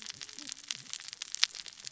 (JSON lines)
{"label": "biophony, cascading saw", "recorder": "SoundTrap 600 or HydroMoth"}